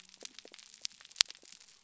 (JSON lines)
{"label": "biophony", "recorder": "SoundTrap 300"}